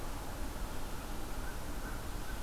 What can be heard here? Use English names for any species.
American Crow